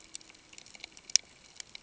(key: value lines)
label: ambient
recorder: HydroMoth